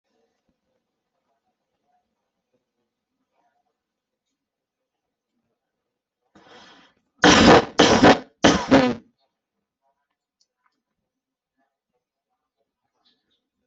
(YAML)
expert_labels:
- quality: poor
  cough_type: wet
  dyspnea: false
  wheezing: false
  stridor: false
  choking: false
  congestion: false
  nothing: true
  diagnosis: COVID-19
  severity: mild
age: 43
gender: female
respiratory_condition: false
fever_muscle_pain: false
status: healthy